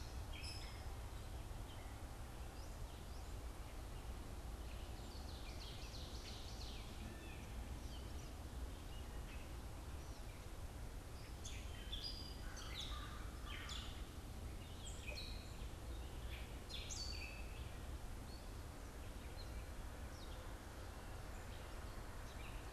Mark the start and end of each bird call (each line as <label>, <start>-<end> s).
Gray Catbird (Dumetella carolinensis), 0.0-2.4 s
Ovenbird (Seiurus aurocapilla), 4.8-7.0 s
Blue Jay (Cyanocitta cristata), 6.9-7.4 s
Gray Catbird (Dumetella carolinensis), 11.2-17.7 s
American Crow (Corvus brachyrhynchos), 12.4-13.9 s
Gray Catbird (Dumetella carolinensis), 19.1-22.7 s